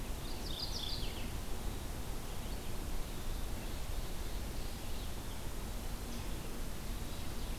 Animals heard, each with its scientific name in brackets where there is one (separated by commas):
Red-eyed Vireo (Vireo olivaceus), Mourning Warbler (Geothlypis philadelphia), Ovenbird (Seiurus aurocapilla)